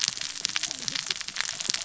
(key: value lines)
label: biophony, cascading saw
recorder: SoundTrap 600 or HydroMoth